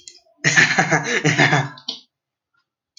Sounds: Laughter